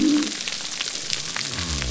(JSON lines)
{"label": "biophony", "recorder": "SoundTrap 300"}